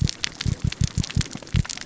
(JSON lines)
{"label": "biophony", "recorder": "SoundTrap 600 or HydroMoth"}